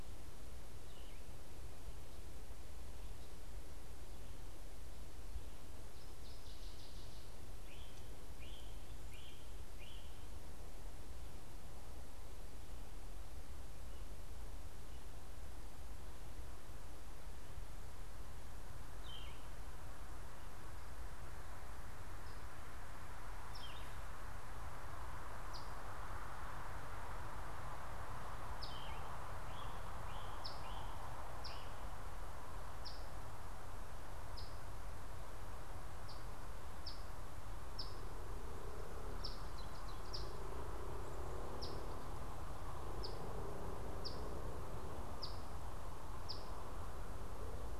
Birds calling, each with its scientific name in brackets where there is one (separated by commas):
Yellow-throated Vireo (Vireo flavifrons), Great Crested Flycatcher (Myiarchus crinitus), Northern Waterthrush (Parkesia noveboracensis), Ovenbird (Seiurus aurocapilla), Eastern Phoebe (Sayornis phoebe)